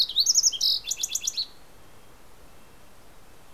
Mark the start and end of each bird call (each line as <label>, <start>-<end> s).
Fox Sparrow (Passerella iliaca), 0.0-1.7 s
Red-breasted Nuthatch (Sitta canadensis), 1.6-3.5 s